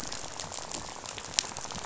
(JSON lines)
{"label": "biophony, rattle", "recorder": "SoundTrap 500"}